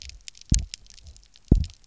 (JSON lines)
{"label": "biophony, double pulse", "recorder": "SoundTrap 300"}